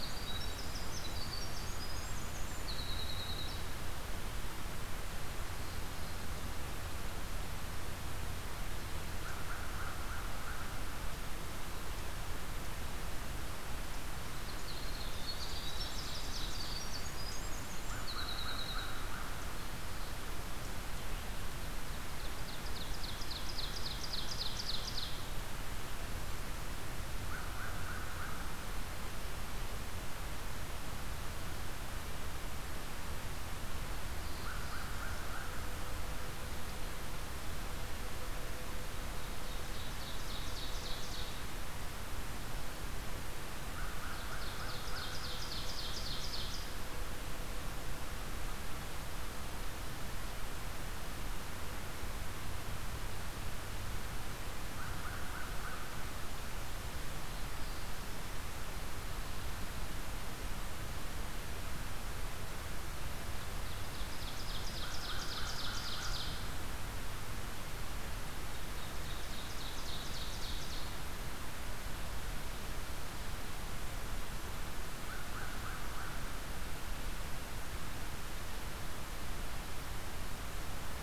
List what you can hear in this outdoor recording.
Winter Wren, American Crow, Ovenbird